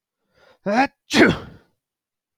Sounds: Sneeze